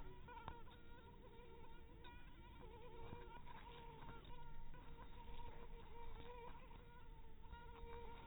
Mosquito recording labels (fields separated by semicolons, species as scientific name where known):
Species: mosquito; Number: one; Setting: cup